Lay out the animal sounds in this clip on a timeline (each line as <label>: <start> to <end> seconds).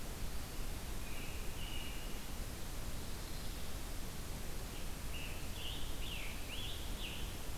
American Robin (Turdus migratorius): 0.8 to 2.3 seconds
Scarlet Tanager (Piranga olivacea): 4.7 to 7.3 seconds